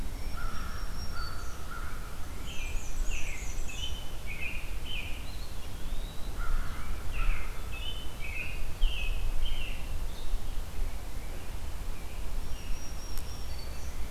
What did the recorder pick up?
Black-throated Green Warbler, American Crow, American Robin, Black-and-white Warbler, Eastern Wood-Pewee